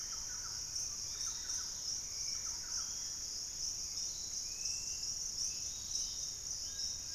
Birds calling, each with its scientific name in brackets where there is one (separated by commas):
Piratic Flycatcher (Legatus leucophaius), Yellow-margined Flycatcher (Tolmomyias assimilis), Dusky-capped Flycatcher (Myiarchus tuberculifer), Collared Trogon (Trogon collaris), Thrush-like Wren (Campylorhynchus turdinus), Dusky-capped Greenlet (Pachysylvia hypoxantha), Hauxwell's Thrush (Turdus hauxwelli), Fasciated Antshrike (Cymbilaimus lineatus)